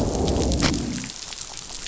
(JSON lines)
{"label": "biophony, growl", "recorder": "SoundTrap 500"}